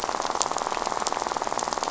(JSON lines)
{"label": "biophony, rattle", "recorder": "SoundTrap 500"}